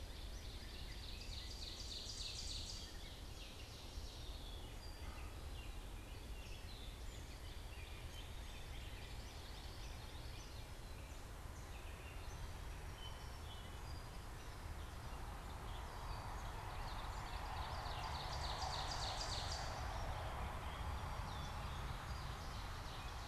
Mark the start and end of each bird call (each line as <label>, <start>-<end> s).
Northern Cardinal (Cardinalis cardinalis), 0.0-0.9 s
Ovenbird (Seiurus aurocapilla), 0.0-2.9 s
Gray Catbird (Dumetella carolinensis), 0.0-12.6 s
Song Sparrow (Melospiza melodia), 3.6-5.8 s
Common Yellowthroat (Geothlypis trichas), 8.5-10.7 s
Song Sparrow (Melospiza melodia), 12.1-14.7 s
Gray Catbird (Dumetella carolinensis), 14.7-23.3 s
Ovenbird (Seiurus aurocapilla), 15.6-20.0 s
Ovenbird (Seiurus aurocapilla), 21.7-23.3 s